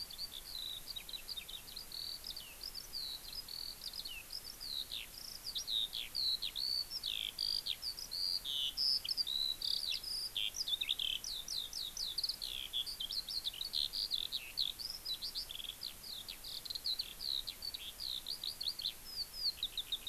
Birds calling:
Eurasian Skylark (Alauda arvensis)

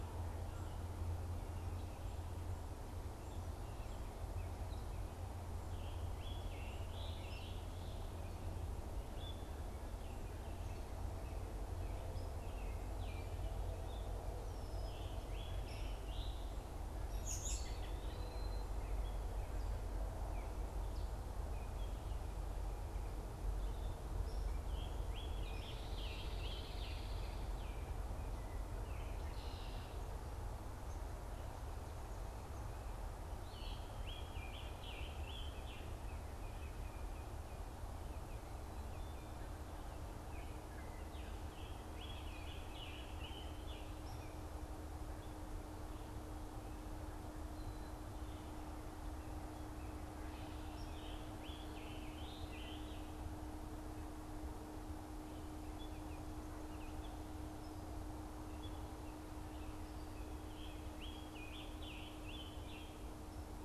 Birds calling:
American Robin (Turdus migratorius), unidentified bird, Baltimore Oriole (Icterus galbula), Scarlet Tanager (Piranga olivacea), Hairy Woodpecker (Dryobates villosus), Red-winged Blackbird (Agelaius phoeniceus), Eastern Wood-Pewee (Contopus virens)

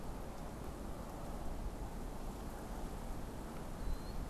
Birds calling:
Killdeer (Charadrius vociferus)

